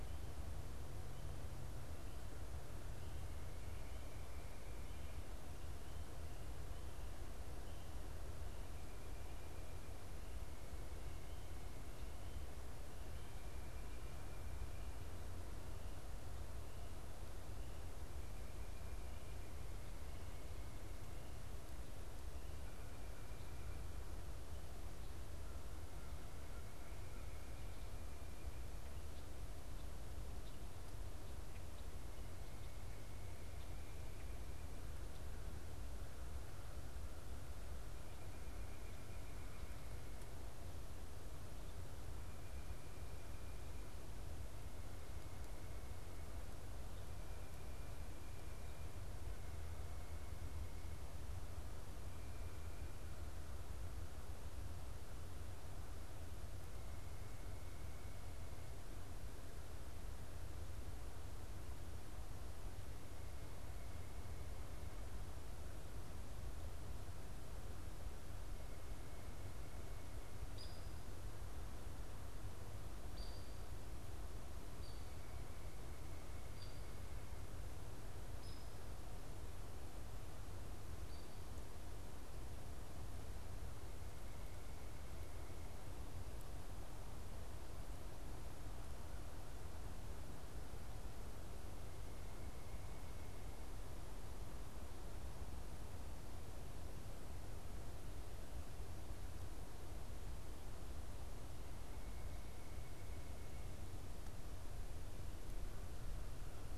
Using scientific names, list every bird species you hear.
Corvus brachyrhynchos, Agelaius phoeniceus, Dryobates villosus